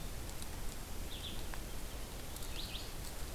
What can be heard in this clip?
Red-eyed Vireo